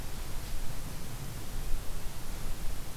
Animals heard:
forest ambience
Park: Katahdin Woods and Waters National Monument